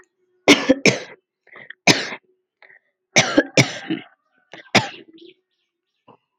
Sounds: Cough